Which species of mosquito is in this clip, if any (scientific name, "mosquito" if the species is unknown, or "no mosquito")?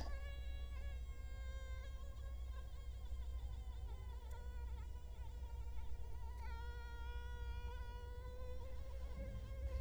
Culex quinquefasciatus